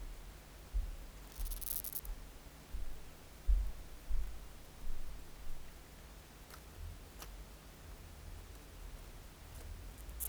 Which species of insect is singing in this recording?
Chorthippus acroleucus